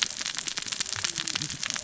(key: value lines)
label: biophony, cascading saw
recorder: SoundTrap 600 or HydroMoth